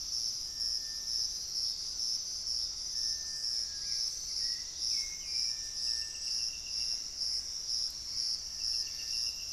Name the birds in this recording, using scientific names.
Turdus hauxwelli, Cercomacra cinerascens